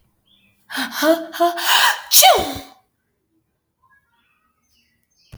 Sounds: Sneeze